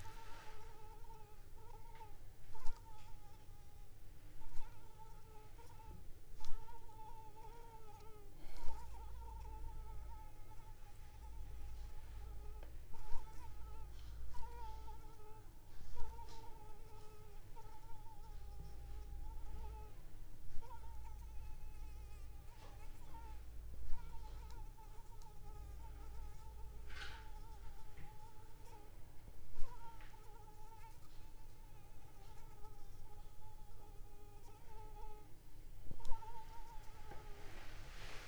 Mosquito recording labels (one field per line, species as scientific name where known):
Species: Anopheles arabiensis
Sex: female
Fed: unfed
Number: one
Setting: cup